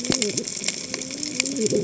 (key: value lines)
label: biophony, cascading saw
recorder: HydroMoth